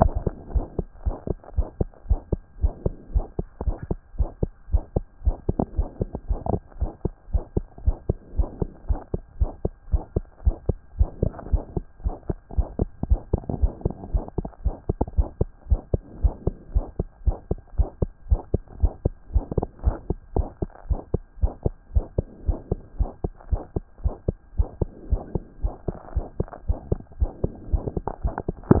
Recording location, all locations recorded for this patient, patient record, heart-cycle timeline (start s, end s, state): pulmonary valve (PV)
aortic valve (AV)+pulmonary valve (PV)+pulmonary valve (PV)+tricuspid valve (TV)+tricuspid valve (TV)+mitral valve (MV)
#Age: Child
#Sex: Male
#Height: 130.0 cm
#Weight: 25.8 kg
#Pregnancy status: False
#Murmur: Present
#Murmur locations: aortic valve (AV)+pulmonary valve (PV)+tricuspid valve (TV)
#Most audible location: pulmonary valve (PV)
#Systolic murmur timing: Early-systolic
#Systolic murmur shape: Decrescendo
#Systolic murmur grading: I/VI
#Systolic murmur pitch: Low
#Systolic murmur quality: Blowing
#Diastolic murmur timing: nan
#Diastolic murmur shape: nan
#Diastolic murmur grading: nan
#Diastolic murmur pitch: nan
#Diastolic murmur quality: nan
#Outcome: Abnormal
#Campaign: 2014 screening campaign
0.00	0.53	unannotated
0.53	0.63	S1
0.63	0.78	systole
0.78	0.84	S2
0.84	1.05	diastole
1.05	1.13	S1
1.13	1.29	systole
1.29	1.34	S2
1.34	1.56	diastole
1.56	1.66	S1
1.66	1.79	systole
1.79	1.88	S2
1.88	2.07	diastole
2.07	2.19	S1
2.19	2.31	systole
2.31	2.40	S2
2.40	2.60	diastole
2.60	2.70	S1
2.70	2.84	systole
2.84	2.91	S2
2.91	3.11	diastole
3.11	3.24	S1
3.24	3.37	systole
3.37	3.46	S2
3.46	3.65	diastole
3.65	3.75	S1
3.75	3.89	systole
3.89	3.98	S2
3.98	4.18	diastole
4.18	4.27	S1
4.27	4.40	systole
4.40	4.50	S2
4.50	4.72	diastole
4.72	4.81	S1
4.81	4.95	systole
4.95	5.03	S2
5.03	5.25	diastole
5.25	5.35	S1
5.35	5.47	systole
5.47	5.55	S2
5.55	5.76	diastole
5.76	5.86	S1
5.86	6.00	systole
6.00	6.07	S2
6.07	6.28	diastole
6.28	6.39	S1
6.39	6.48	systole
6.48	6.53	S2
6.53	6.79	diastole
6.79	6.89	S1
6.89	7.04	systole
7.04	7.12	S2
7.12	7.33	diastole
7.33	7.43	S1
7.43	7.55	systole
7.55	7.63	S2
7.63	7.84	diastole
7.84	7.95	S1
7.95	8.08	systole
8.08	8.17	S2
8.17	8.35	diastole
8.35	8.47	S1
8.47	8.60	systole
8.60	8.68	S2
8.68	8.87	diastole
8.87	8.99	S1
8.99	9.12	systole
9.12	9.22	S2
9.22	9.38	diastole
9.38	9.49	S1
9.49	9.63	systole
9.63	9.71	S2
9.71	9.91	diastole
9.91	10.00	S1
10.00	10.15	systole
10.15	10.22	S2
10.22	10.44	diastole
10.44	10.54	S1
10.54	10.67	systole
10.67	10.76	S2
10.76	10.98	diastole
10.98	11.07	S1
11.07	11.21	systole
11.21	11.28	S2
11.28	11.52	diastole
11.52	11.61	S1
11.61	11.75	systole
11.75	11.82	S2
11.82	12.04	diastole
12.04	12.13	S1
12.13	12.28	systole
12.28	12.36	S2
12.36	12.56	diastole
12.56	12.65	S1
12.65	12.79	systole
12.79	12.85	S2
12.85	13.10	diastole
13.10	13.20	S1
13.20	13.32	systole
13.32	13.38	S2
13.38	13.62	diastole
13.62	13.69	S1
13.69	13.83	systole
13.83	13.90	S2
13.90	14.11	diastole
14.11	14.22	S1
14.22	14.37	systole
14.37	14.43	S2
14.43	14.64	diastole
14.64	14.74	S1
14.74	14.88	systole
14.88	14.93	S2
14.93	15.17	diastole
15.17	15.26	S1
15.26	15.39	systole
15.39	15.47	S2
15.47	15.69	diastole
15.69	15.80	S1
15.80	15.92	systole
15.92	16.00	S2
16.00	16.22	diastole
16.22	16.32	S1
16.32	16.45	systole
16.45	16.52	S2
16.52	16.74	diastole
16.74	16.84	S1
16.84	16.99	systole
16.99	17.06	S2
17.06	17.24	diastole
17.24	17.34	S1
17.34	17.50	systole
17.50	17.57	S2
17.57	17.77	diastole
17.77	17.85	S1
17.85	18.00	systole
18.00	18.11	S2
18.11	18.30	diastole
18.30	18.38	S1
18.38	18.53	systole
18.53	18.59	S2
18.59	18.82	diastole
18.82	18.90	S1
18.90	19.03	systole
19.03	19.12	S2
19.12	19.32	diastole
19.32	19.42	S1
19.42	19.56	systole
19.56	19.62	S2
19.62	19.84	diastole
19.84	19.94	S1
19.94	20.09	systole
20.09	20.15	S2
20.15	20.35	diastole
20.35	20.45	S1
20.45	20.61	systole
20.61	20.68	S2
20.68	20.88	diastole
20.88	21.00	S1
21.00	21.13	systole
21.13	21.19	S2
21.19	21.43	diastole
21.43	21.50	S1
21.50	21.65	systole
21.65	21.70	S2
21.70	21.94	diastole
21.94	22.03	S1
22.03	22.17	systole
22.17	22.23	S2
22.23	22.46	diastole
22.46	22.56	S1
22.56	22.70	systole
22.70	22.76	S2
22.76	22.97	diastole
22.97	23.06	S1
23.06	23.23	systole
23.23	23.30	S2
23.30	23.50	diastole
23.50	23.59	S1
23.59	23.75	systole
23.75	23.81	S2
23.81	24.03	diastole
24.03	24.12	S1
24.12	24.27	systole
24.27	24.34	S2
24.34	24.57	diastole
24.57	24.67	S1
24.67	24.79	systole
24.79	24.87	S2
24.87	25.10	diastole
25.10	25.19	S1
25.19	25.34	systole
25.34	25.40	S2
25.40	25.62	diastole
25.62	25.71	S1
25.71	25.86	systole
25.86	25.93	S2
25.93	26.14	diastole
26.14	26.22	S1
26.22	26.38	systole
26.38	26.45	S2
26.45	26.67	diastole
26.67	26.75	S1
26.75	26.90	systole
26.90	26.97	S2
26.97	27.20	diastole
27.20	27.28	S1
27.28	27.43	systole
27.43	27.49	S2
27.49	27.70	diastole
27.70	28.80	unannotated